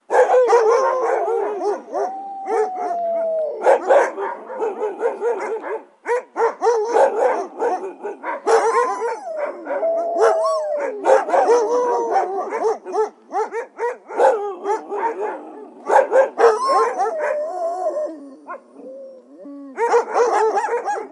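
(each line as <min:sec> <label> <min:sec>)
0:00.1 A pack of dogs barking loudly and repeatedly. 0:21.1
0:01.9 A dog howls loudly and then fades away. 0:03.7
0:08.6 A group of dogs howling loudly and fading. 0:11.0
0:16.6 A dog howls loudly and then fades away. 0:18.6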